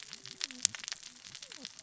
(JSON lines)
{"label": "biophony, cascading saw", "recorder": "SoundTrap 600 or HydroMoth"}